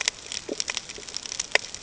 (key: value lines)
label: ambient
recorder: HydroMoth